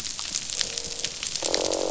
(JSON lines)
{"label": "biophony, croak", "recorder": "SoundTrap 500"}